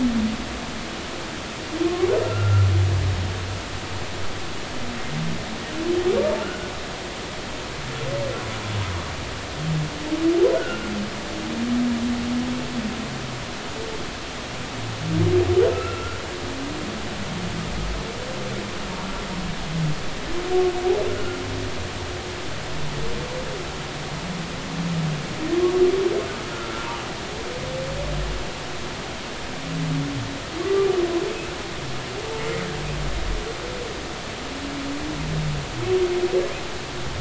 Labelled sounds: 1.8	2.7	humpback whale, 1.0 to 1.4 kHz
6.4	6.7	humpback whale, 1.3 to 1.5 kHz
10.6	10.9	humpback whale, 1.3 to 1.5 kHz
15.7	16.2	humpback whale, 1.2 to 2.8 kHz
21.1	21.4	humpback whale, 1.3 to 1.5 kHz
26.5	26.9	humpback whale, 1.2 to 1.5 kHz
30.6	30.9	humpback whale, 1.1 to 1.2 kHz
32.4	32.7	humpback whale, 1.8 to 2.2 kHz

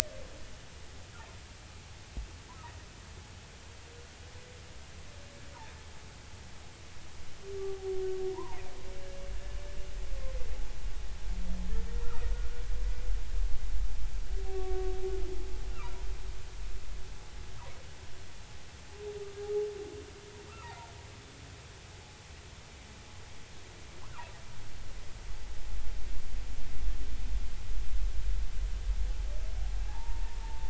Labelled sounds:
7.6	8.6	humpback whale, 0.80 to 1.1 kHz
11.7	12.3	humpback whale, 1.2 to 1.9 kHz
14.4	15.0	humpback whale, 0.80 to 1.2 kHz
15.7	16.1	humpback whale, 0.90 to 1.5 kHz
20.6	20.9	humpback whale, 0.80 to 1.1 kHz
29.9	30.6	humpback whale, 0.80 to 0.99 kHz

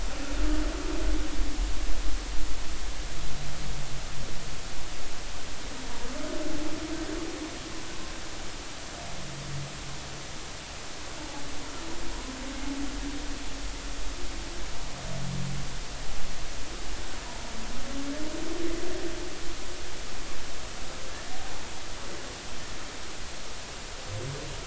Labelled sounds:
12.1	12.4	humpback whale, 0.93 to 1.1 kHz

